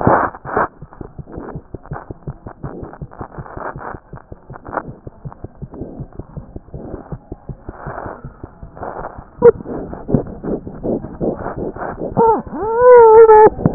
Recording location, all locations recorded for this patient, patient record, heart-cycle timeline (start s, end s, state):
mitral valve (MV)
aortic valve (AV)+mitral valve (MV)
#Age: Infant
#Sex: Female
#Height: nan
#Weight: 7.2 kg
#Pregnancy status: False
#Murmur: Absent
#Murmur locations: nan
#Most audible location: nan
#Systolic murmur timing: nan
#Systolic murmur shape: nan
#Systolic murmur grading: nan
#Systolic murmur pitch: nan
#Systolic murmur quality: nan
#Diastolic murmur timing: nan
#Diastolic murmur shape: nan
#Diastolic murmur grading: nan
#Diastolic murmur pitch: nan
#Diastolic murmur quality: nan
#Outcome: Normal
#Campaign: 2014 screening campaign
0.00	5.25	unannotated
5.25	5.30	S1
5.30	5.43	systole
5.43	5.48	S2
5.48	5.62	diastole
5.62	5.68	S1
5.68	5.80	systole
5.80	5.86	S2
5.86	6.00	diastole
6.00	6.06	S1
6.06	6.18	systole
6.18	6.24	S2
6.24	6.37	diastole
6.37	6.42	S1
6.42	6.55	diastole
6.55	6.61	S1
6.61	6.74	systole
6.74	6.79	S2
6.79	6.93	diastole
6.93	6.98	S1
6.98	7.11	systole
7.11	7.17	S2
7.17	7.31	diastole
7.31	7.37	S1
7.37	7.49	systole
7.49	7.55	S2
7.55	7.69	diastole
7.69	13.74	unannotated